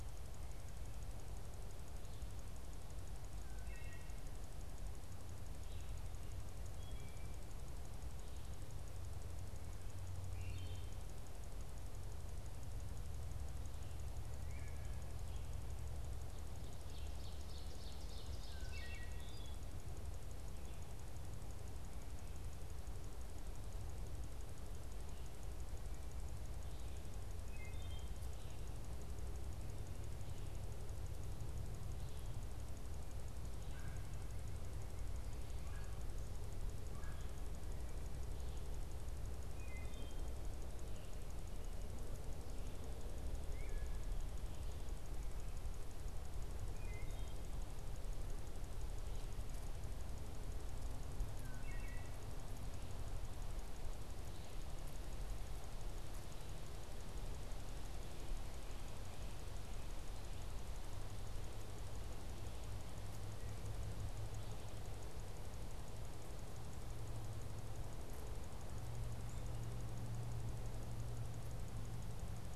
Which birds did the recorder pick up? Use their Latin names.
Hylocichla mustelina, Seiurus aurocapilla, Melanerpes carolinus